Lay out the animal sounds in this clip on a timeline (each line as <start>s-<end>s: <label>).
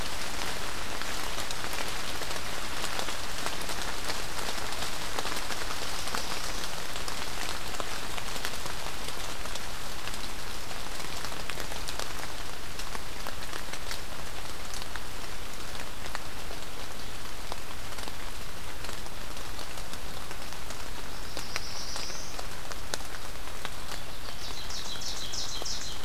21.1s-22.3s: Black-throated Blue Warbler (Setophaga caerulescens)
24.0s-26.0s: Ovenbird (Seiurus aurocapilla)